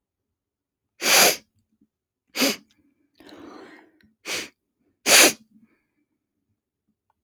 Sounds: Sniff